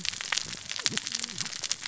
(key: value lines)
label: biophony, cascading saw
recorder: SoundTrap 600 or HydroMoth